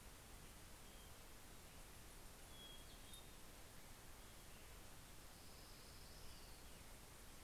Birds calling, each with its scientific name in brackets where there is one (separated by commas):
Hermit Thrush (Catharus guttatus), Orange-crowned Warbler (Leiothlypis celata)